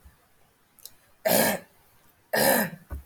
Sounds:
Throat clearing